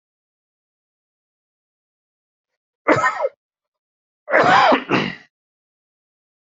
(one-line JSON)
{"expert_labels": [{"quality": "good", "cough_type": "dry", "dyspnea": false, "wheezing": false, "stridor": false, "choking": false, "congestion": false, "nothing": true, "diagnosis": "healthy cough", "severity": "pseudocough/healthy cough"}], "age": 54, "gender": "male", "respiratory_condition": false, "fever_muscle_pain": false, "status": "healthy"}